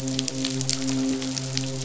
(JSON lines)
{"label": "biophony, midshipman", "recorder": "SoundTrap 500"}